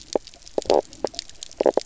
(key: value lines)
label: biophony, knock croak
recorder: SoundTrap 300